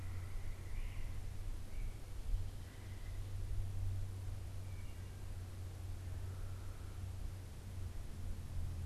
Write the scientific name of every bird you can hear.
Myiarchus crinitus, Hylocichla mustelina